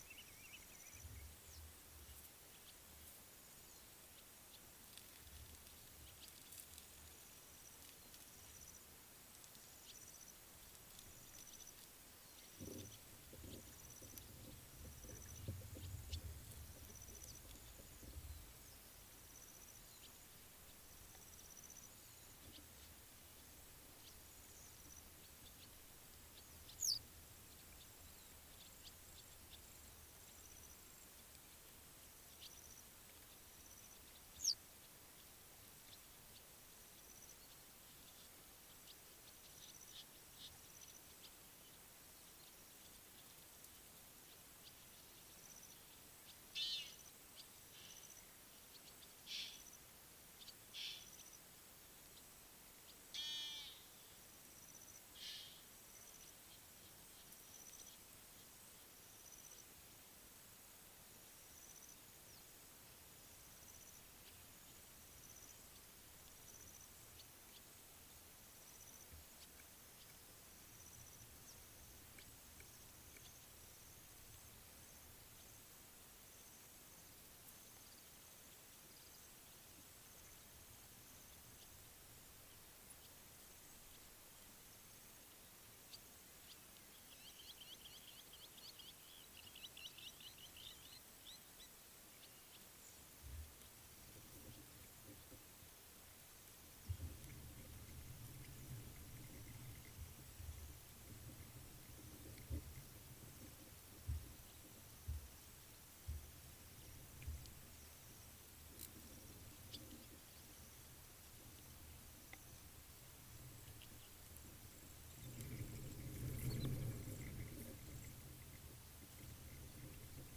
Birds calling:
Western Yellow Wagtail (Motacilla flava), Blacksmith Lapwing (Vanellus armatus), Egyptian Goose (Alopochen aegyptiaca)

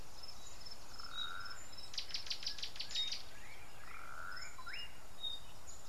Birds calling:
Gray-backed Camaroptera (Camaroptera brevicaudata), Slate-colored Boubou (Laniarius funebris)

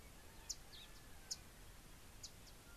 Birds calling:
Beautiful Sunbird (Cinnyris pulchellus)

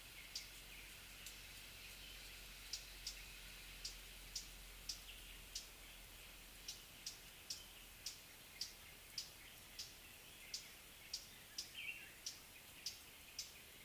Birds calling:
Northern Double-collared Sunbird (Cinnyris reichenowi)

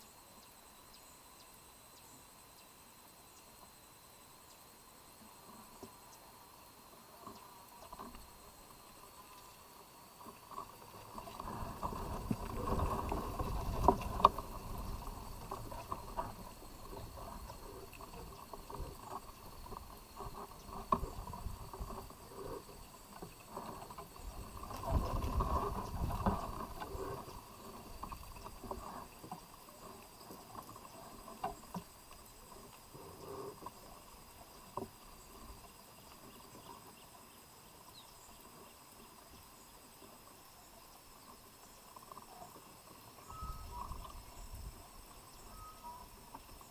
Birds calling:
Tropical Boubou (Laniarius major)

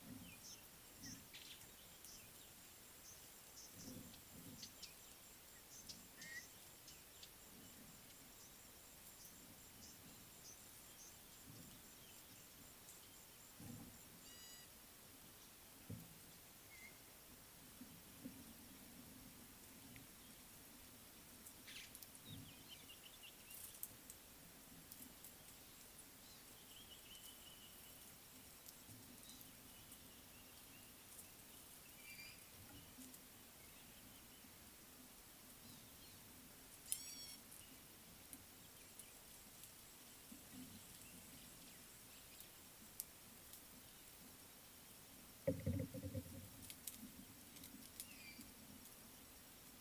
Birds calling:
Speckle-fronted Weaver (Sporopipes frontalis), Common Bulbul (Pycnonotus barbatus), Gray-backed Camaroptera (Camaroptera brevicaudata)

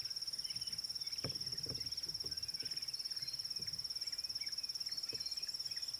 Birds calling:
Red-backed Scrub-Robin (Cercotrichas leucophrys), Klaas's Cuckoo (Chrysococcyx klaas)

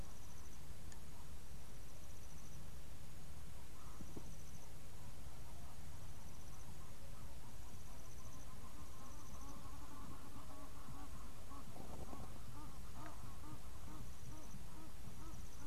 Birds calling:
Egyptian Goose (Alopochen aegyptiaca)

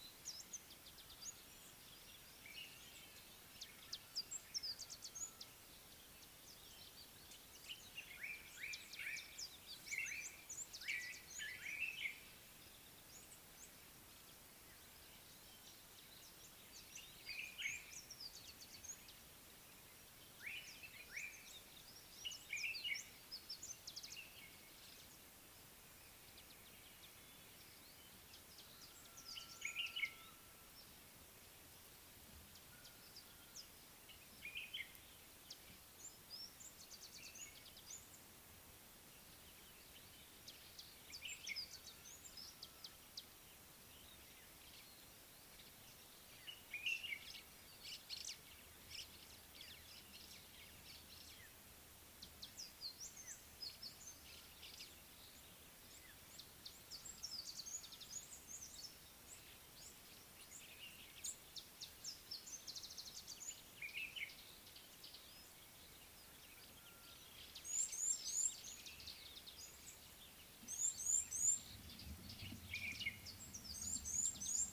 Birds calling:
Amethyst Sunbird (Chalcomitra amethystina), Common Bulbul (Pycnonotus barbatus), Red-cheeked Cordonbleu (Uraeginthus bengalus), Slate-colored Boubou (Laniarius funebris)

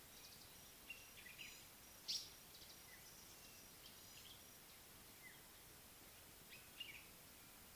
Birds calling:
Common Bulbul (Pycnonotus barbatus), African Paradise-Flycatcher (Terpsiphone viridis)

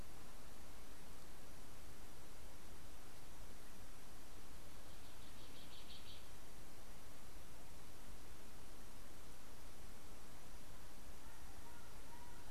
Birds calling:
Cinnamon Bracken-Warbler (Bradypterus cinnamomeus)

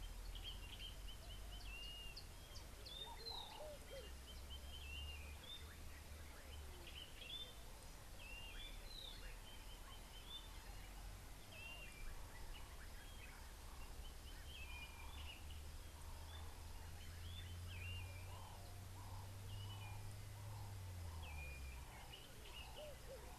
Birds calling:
Blue-naped Mousebird (Urocolius macrourus), White-browed Robin-Chat (Cossypha heuglini)

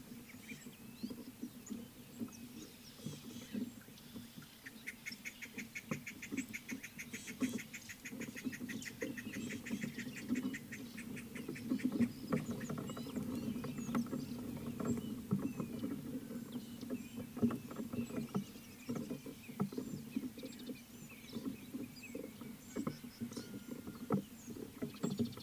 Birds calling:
Rattling Cisticola (Cisticola chiniana), White-browed Coucal (Centropus superciliosus), Gray-backed Camaroptera (Camaroptera brevicaudata)

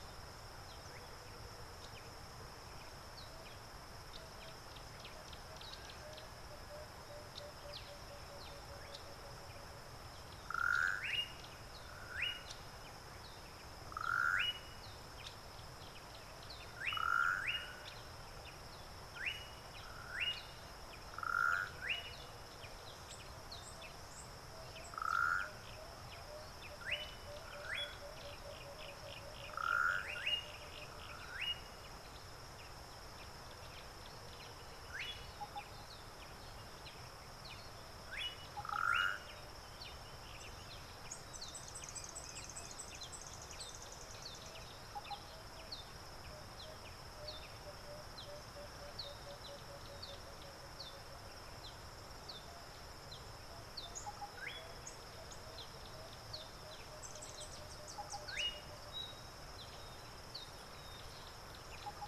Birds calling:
Yellow Bishop (Euplectes capensis), Emerald-spotted Wood-Dove (Turtur chalcospilos), African Goshawk (Accipiter tachiro), Yellow-breasted Apalis (Apalis flavida), Slate-colored Boubou (Laniarius funebris)

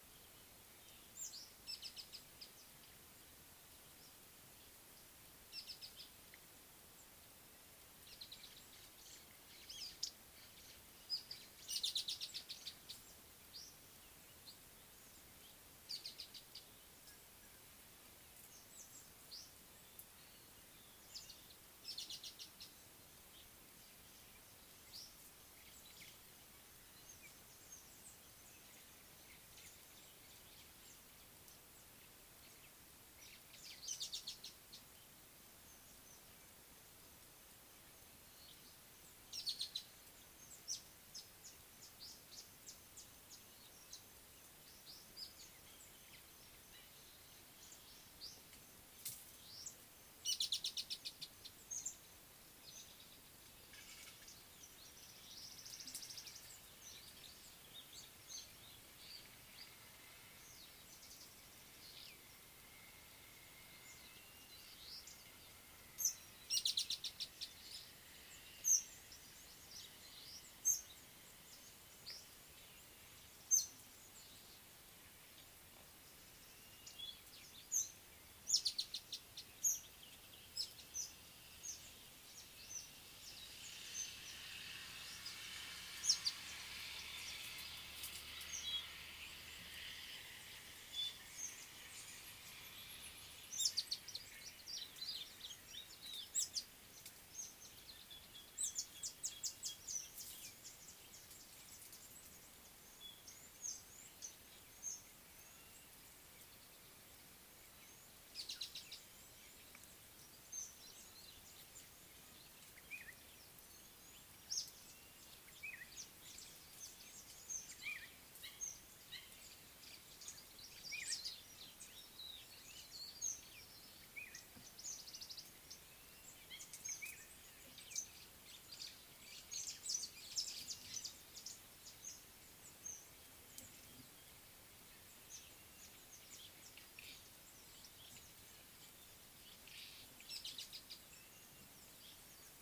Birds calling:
Spotted Morning-Thrush (Cichladusa guttata), Baglafecht Weaver (Ploceus baglafecht), Speckled Mousebird (Colius striatus), Red-rumped Swallow (Cecropis daurica), Red-faced Crombec (Sylvietta whytii)

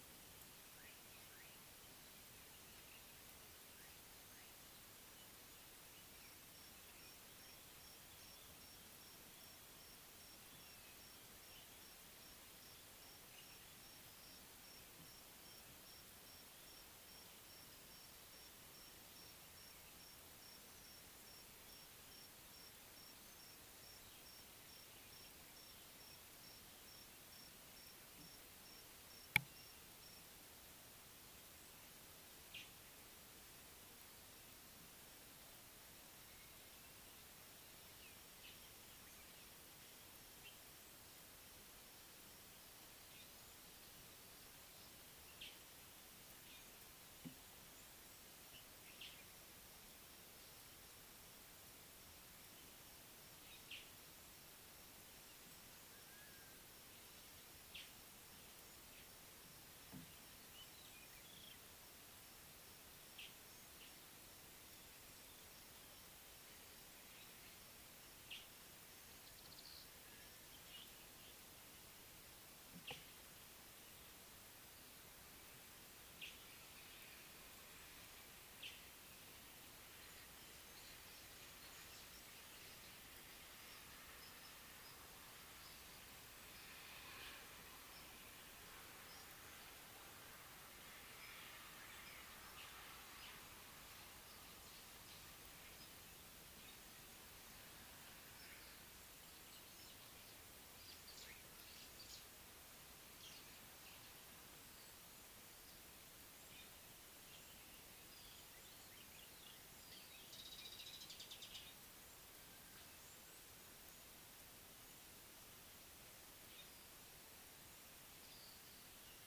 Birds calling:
Mariqua Sunbird (Cinnyris mariquensis)

